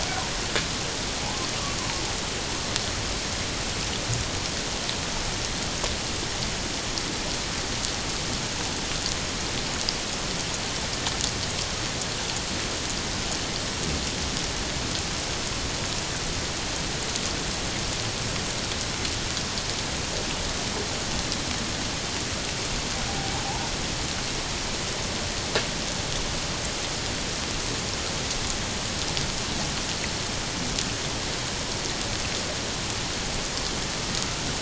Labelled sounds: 1.2	1.5	humpback whale, 0.78 to 1.1 kHz
23.1	23.6	humpback whale, 0.78 to 1.0 kHz

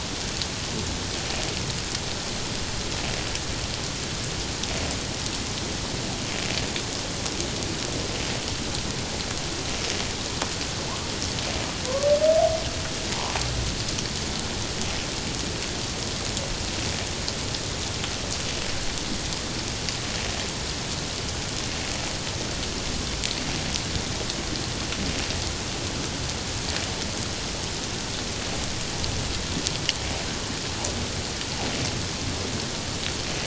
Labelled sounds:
11.9	12.1	humpback whale, 0.97 to 1.2 kHz

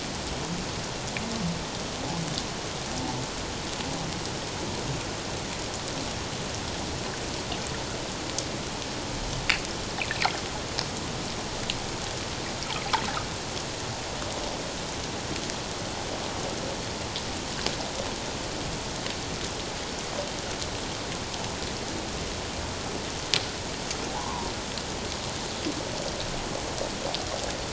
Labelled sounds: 24.1	24.5	humpback whale, 0.78 to 1.2 kHz

